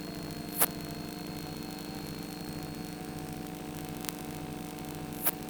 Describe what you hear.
Poecilimon hoelzeli, an orthopteran